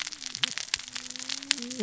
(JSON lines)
{"label": "biophony, cascading saw", "recorder": "SoundTrap 600 or HydroMoth"}